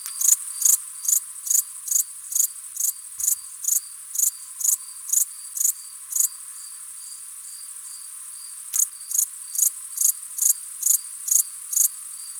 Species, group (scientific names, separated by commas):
Pholidoptera macedonica, Orthoptera